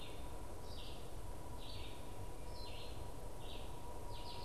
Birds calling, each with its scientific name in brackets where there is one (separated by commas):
Red-eyed Vireo (Vireo olivaceus)